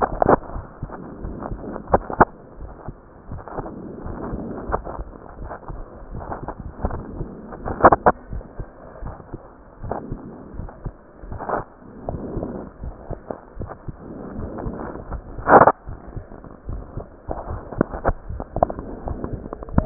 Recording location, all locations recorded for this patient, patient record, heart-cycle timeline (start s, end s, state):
mitral valve (MV)
aortic valve (AV)+pulmonary valve (PV)+tricuspid valve (TV)+mitral valve (MV)
#Age: Child
#Sex: Male
#Height: 129.0 cm
#Weight: 23.5 kg
#Pregnancy status: False
#Murmur: Absent
#Murmur locations: nan
#Most audible location: nan
#Systolic murmur timing: nan
#Systolic murmur shape: nan
#Systolic murmur grading: nan
#Systolic murmur pitch: nan
#Systolic murmur quality: nan
#Diastolic murmur timing: nan
#Diastolic murmur shape: nan
#Diastolic murmur grading: nan
#Diastolic murmur pitch: nan
#Diastolic murmur quality: nan
#Outcome: Abnormal
#Campaign: 2015 screening campaign
0.00	8.00	unannotated
8.00	8.30	diastole
8.30	8.44	S1
8.44	8.58	systole
8.58	8.66	S2
8.66	9.02	diastole
9.02	9.14	S1
9.14	9.32	systole
9.32	9.40	S2
9.40	9.82	diastole
9.82	9.96	S1
9.96	10.08	systole
10.08	10.20	S2
10.20	10.54	diastole
10.54	10.70	S1
10.70	10.82	systole
10.82	10.92	S2
10.92	11.28	diastole
11.28	11.42	S1
11.42	11.54	systole
11.54	11.64	S2
11.64	12.06	diastole
12.06	12.20	S1
12.20	12.34	systole
12.34	12.50	S2
12.50	12.82	diastole
12.82	12.94	S1
12.94	13.08	systole
13.08	13.18	S2
13.18	13.58	diastole
13.58	13.70	S1
13.70	13.84	systole
13.84	13.96	S2
13.96	14.36	diastole
14.36	14.52	S1
14.52	14.64	systole
14.64	14.78	S2
14.78	15.10	diastole
15.10	19.86	unannotated